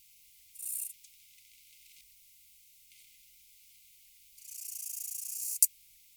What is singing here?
Acrometopa macropoda, an orthopteran